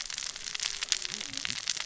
{"label": "biophony, cascading saw", "recorder": "SoundTrap 600 or HydroMoth"}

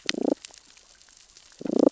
{"label": "biophony, damselfish", "recorder": "SoundTrap 600 or HydroMoth"}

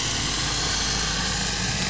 {"label": "anthrophony, boat engine", "recorder": "SoundTrap 500"}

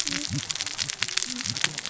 {"label": "biophony, cascading saw", "recorder": "SoundTrap 600 or HydroMoth"}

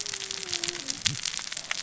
{"label": "biophony, cascading saw", "recorder": "SoundTrap 600 or HydroMoth"}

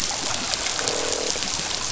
{"label": "biophony, croak", "recorder": "SoundTrap 500"}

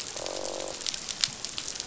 {"label": "biophony, croak", "recorder": "SoundTrap 500"}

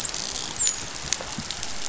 {"label": "biophony, dolphin", "recorder": "SoundTrap 500"}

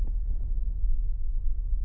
{"label": "anthrophony, boat engine", "recorder": "SoundTrap 300"}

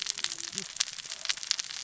{"label": "biophony, cascading saw", "recorder": "SoundTrap 600 or HydroMoth"}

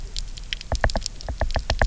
{"label": "biophony, knock", "recorder": "SoundTrap 300"}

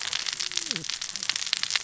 {"label": "biophony, cascading saw", "recorder": "SoundTrap 600 or HydroMoth"}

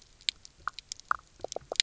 {"label": "biophony, knock croak", "recorder": "SoundTrap 300"}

